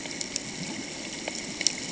{"label": "ambient", "recorder": "HydroMoth"}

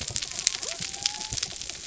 {"label": "anthrophony, mechanical", "recorder": "SoundTrap 300"}
{"label": "biophony", "recorder": "SoundTrap 300"}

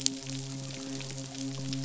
{"label": "biophony, midshipman", "recorder": "SoundTrap 500"}
{"label": "biophony", "recorder": "SoundTrap 500"}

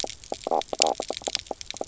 {"label": "biophony, knock croak", "recorder": "SoundTrap 300"}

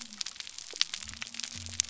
{"label": "biophony", "recorder": "SoundTrap 300"}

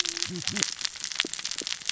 {"label": "biophony, cascading saw", "recorder": "SoundTrap 600 or HydroMoth"}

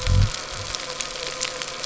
{"label": "anthrophony, boat engine", "recorder": "SoundTrap 300"}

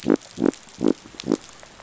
{"label": "biophony", "recorder": "SoundTrap 500"}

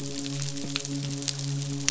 {"label": "biophony, midshipman", "recorder": "SoundTrap 500"}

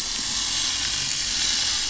{"label": "anthrophony, boat engine", "recorder": "SoundTrap 500"}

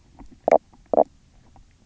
{"label": "biophony, knock croak", "recorder": "SoundTrap 300"}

